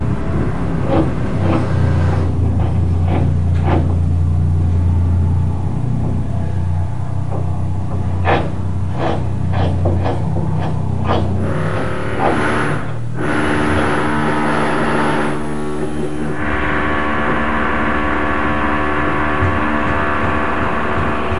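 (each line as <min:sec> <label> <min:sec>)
0:00.0 A low hum of a construction engine. 0:21.4
0:01.0 A saw cutting through wood. 0:04.8
0:07.2 A saw cutting through wood. 0:21.4
0:12.9 A drill is operating. 0:21.4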